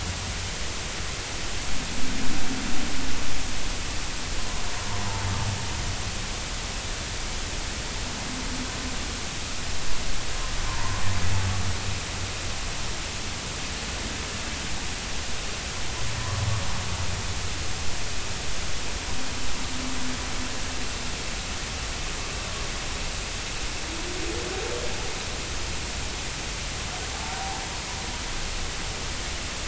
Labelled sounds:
10.7	11.0	humpback whale, 0.86 to 1.1 kHz

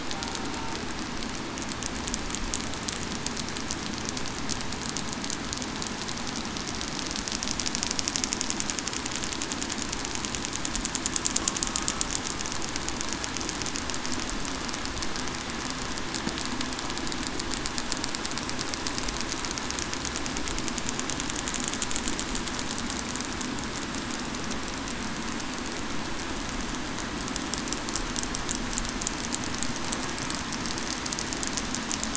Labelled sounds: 11.6	12.1	killer whale, southern resident, 1.2 to 1.4 kHz

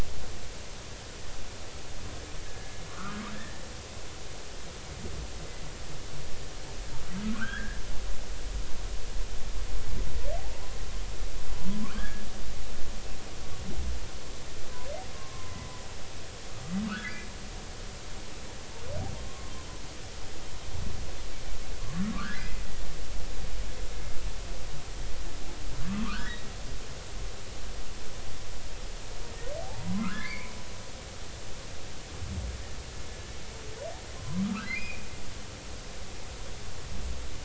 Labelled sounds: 2.5	3.6	humpback whale, 1.0 to 1.9 kHz
7.3	7.8	humpback whale, 1.1 to 1.9 kHz
10.4	10.7	humpback whale, 0.80 to 1.1 kHz
11.8	12.2	humpback whale, 0.99 to 1.8 kHz
15.1	15.7	humpback whale, 0.90 to 1.2 kHz
16.9	17.3	humpback whale, 1.1 to 2.5 kHz
19.2	19.5	humpback whale, 1.0 to 1.1 kHz
21.8	22.6	humpback whale, 1.0 to 2.1 kHz
26.0	26.5	humpback whale, 1.0 to 2.0 kHz
29.6	30.5	humpback whale, 0.80 to 2.5 kHz
34.2	35.1	humpback whale, 0.93 to 2.6 kHz

